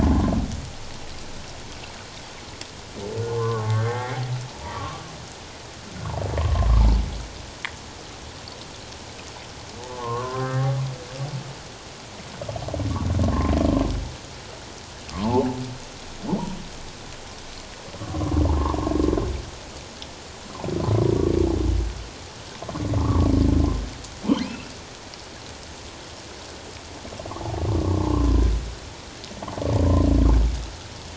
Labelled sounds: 3.3	4.2	humpback whale, 0.78 to 2.2 kHz
4.6	5.0	humpback whale, 1.0 to 1.3 kHz
6.4	6.7	humpback whale, 0.94 to 1.1 kHz
9.9	10.7	humpback whale, 0.81 to 1.9 kHz
15.1	15.5	humpback whale, 0.78 to 1.2 kHz
18.0	18.9	humpback whale, 0.84 to 1.2 kHz
23.0	23.3	humpback whale, 0.91 to 1.3 kHz
24.4	24.7	humpback whale, 2.3 to 2.8 kHz
27.9	28.1	humpback whale, 0.84 to 1.2 kHz

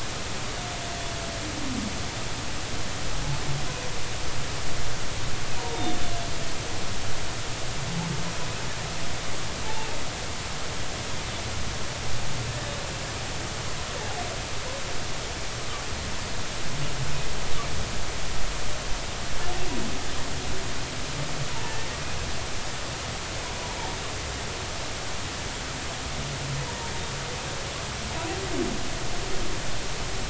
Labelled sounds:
5.6	6.0	humpback whale, 0.86 to 3.7 kHz
9.6	9.9	humpback whale, 0.80 to 0.96 kHz
14.0	14.2	humpback whale, 0.80 to 0.99 kHz
21.6	21.9	humpback whale, 1.7 to 1.9 kHz

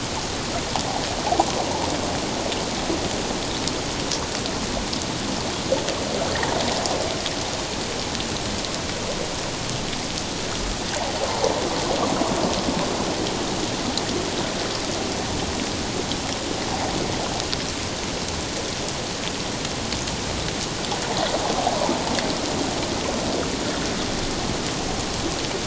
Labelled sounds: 1.2	1.5	water noise, 0.78 to 1.1 kHz
11.2	11.5	water noise, 0.78 to 1.1 kHz

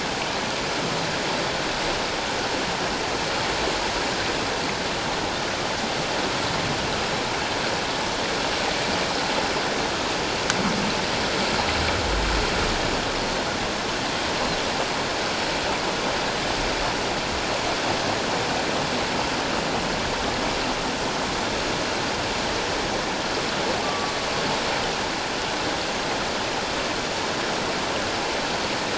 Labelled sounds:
23.8	24.1	humpback whale, 1.1 to 1.2 kHz

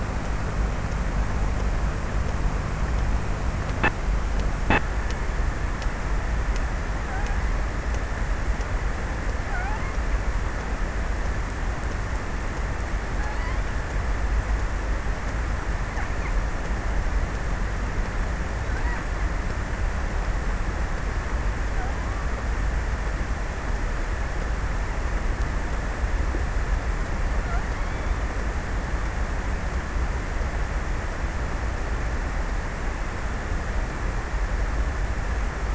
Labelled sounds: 8.5	10.4	killer whale, offshore, 0.28 to 2.8 kHz

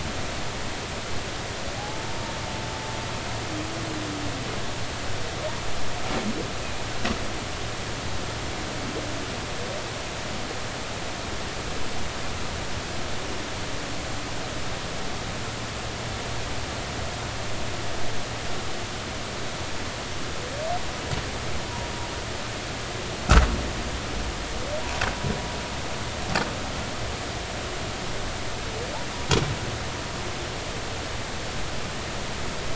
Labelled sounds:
1.8	2.1	humpback whale, 0.80 to 0.93 kHz

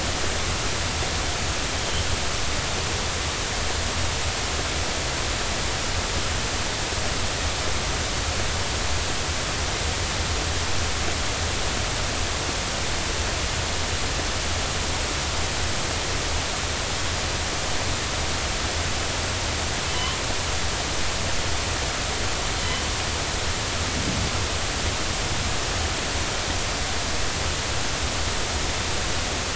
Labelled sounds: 1.8	2.1	killer whale, northern resident, G clan, 3.0 to 3.3 kHz
19.9	20.2	killer whale, northern resident, G clan, 2.9 to 3.3 kHz

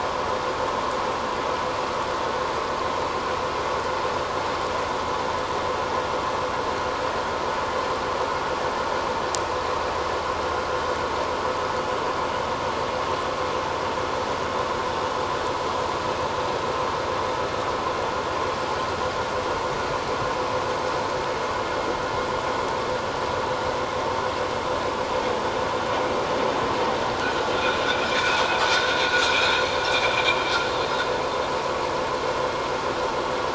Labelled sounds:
27.9	28.2	vessel noise, 2.2 to 2.5 kHz
29.2	29.5	vessel noise, 2.2 to 2.6 kHz

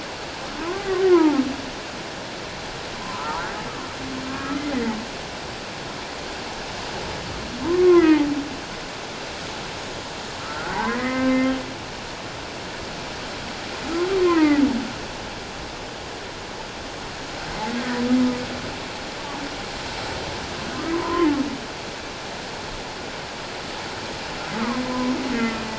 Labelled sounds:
0.6	1.4	humpback whale, 0.78 to 1.5 kHz
3.0	3.6	humpback whale, 0.81 to 1.8 kHz
4.3	5.0	humpback whale, 1.1 to 2.1 kHz
7.6	8.2	humpback whale, 0.88 to 2.2 kHz
10.4	11.4	humpback whale, 0.78 to 2.1 kHz
14.2	14.6	humpback whale, 0.84 to 2.2 kHz
20.9	21.3	humpback whale, 0.91 to 1.1 kHz
24.8	25.6	humpback whale, 0.97 to 1.4 kHz

